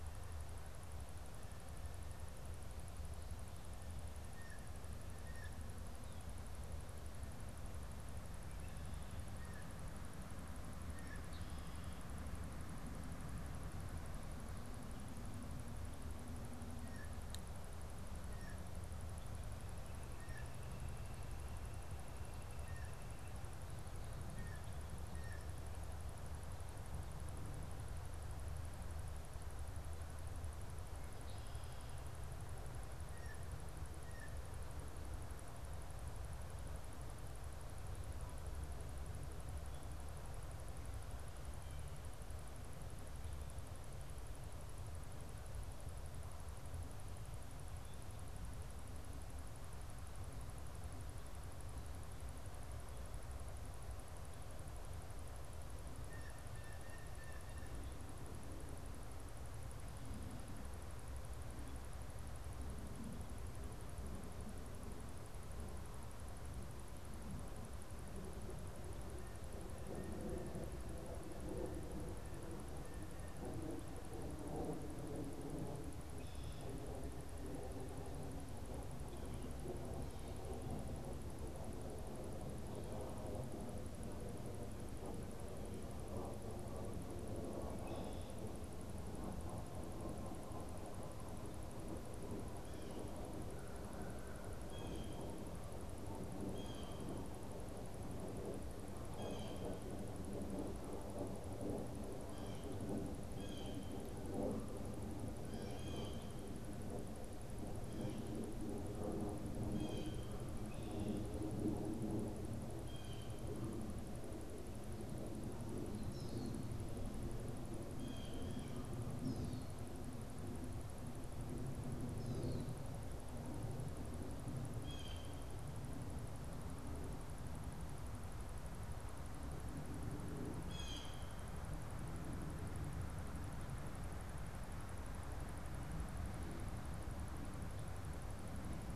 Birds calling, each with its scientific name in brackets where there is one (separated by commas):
Common Grackle (Quiscalus quiscula), Blue Jay (Cyanocitta cristata)